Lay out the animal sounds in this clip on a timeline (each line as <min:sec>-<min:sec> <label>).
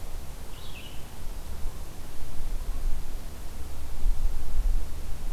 0:00.4-0:05.3 Red-eyed Vireo (Vireo olivaceus)